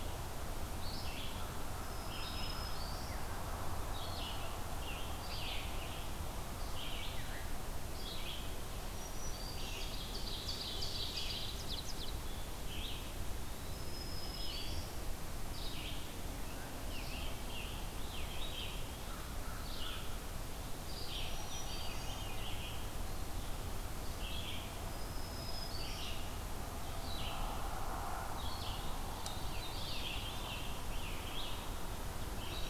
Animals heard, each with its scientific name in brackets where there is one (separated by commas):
Scarlet Tanager (Piranga olivacea), Veery (Catharus fuscescens), Red-eyed Vireo (Vireo olivaceus), Ovenbird (Seiurus aurocapilla), Black-throated Green Warbler (Setophaga virens), American Crow (Corvus brachyrhynchos)